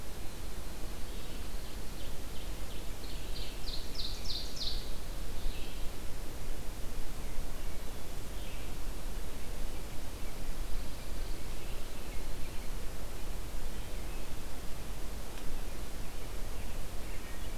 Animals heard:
Ovenbird (Seiurus aurocapilla)
American Robin (Turdus migratorius)
Pine Warbler (Setophaga pinus)
Red-eyed Vireo (Vireo olivaceus)

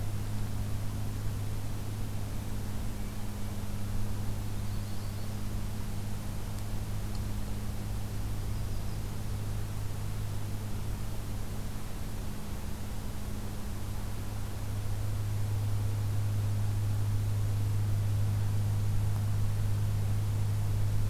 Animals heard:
Yellow-rumped Warbler (Setophaga coronata)

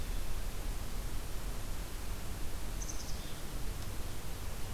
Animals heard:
Black-capped Chickadee (Poecile atricapillus)

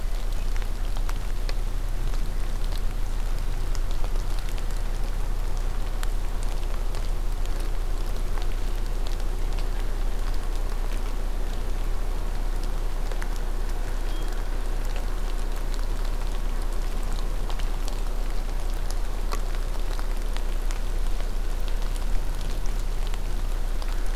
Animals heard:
Hermit Thrush (Catharus guttatus)

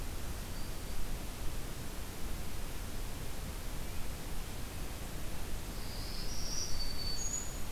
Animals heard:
Black-throated Green Warbler (Setophaga virens)

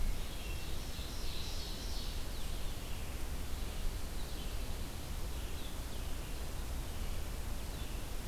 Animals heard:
Blue-headed Vireo (Vireo solitarius)
Red-eyed Vireo (Vireo olivaceus)
Hermit Thrush (Catharus guttatus)
Pine Warbler (Setophaga pinus)
Ovenbird (Seiurus aurocapilla)

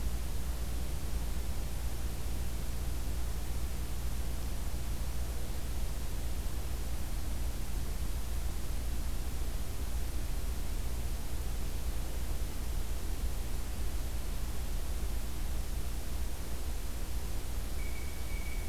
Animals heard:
Blue Jay (Cyanocitta cristata)

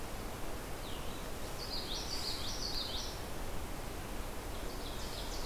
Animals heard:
Ovenbird (Seiurus aurocapilla)
Blue-headed Vireo (Vireo solitarius)
Common Yellowthroat (Geothlypis trichas)

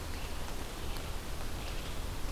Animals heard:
Red-eyed Vireo (Vireo olivaceus)

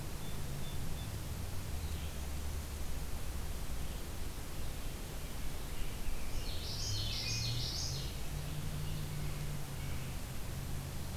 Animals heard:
Wood Thrush (Hylocichla mustelina)
Common Yellowthroat (Geothlypis trichas)
Song Sparrow (Melospiza melodia)
American Robin (Turdus migratorius)

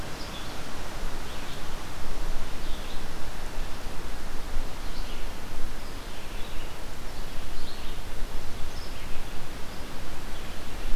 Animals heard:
Red-eyed Vireo (Vireo olivaceus)

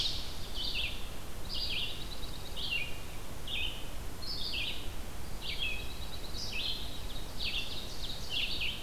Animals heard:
Red-eyed Vireo (Vireo olivaceus)
Ovenbird (Seiurus aurocapilla)
Dark-eyed Junco (Junco hyemalis)

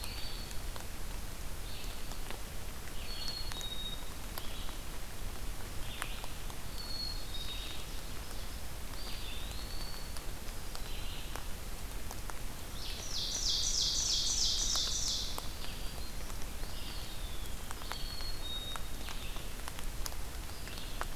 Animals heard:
Black-throated Green Warbler (Setophaga virens)
Eastern Wood-Pewee (Contopus virens)
Ovenbird (Seiurus aurocapilla)
Red-eyed Vireo (Vireo olivaceus)
Black-capped Chickadee (Poecile atricapillus)

